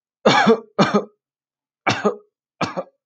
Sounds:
Cough